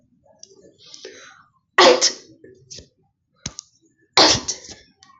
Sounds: Sneeze